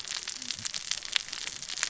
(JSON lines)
{"label": "biophony, cascading saw", "recorder": "SoundTrap 600 or HydroMoth"}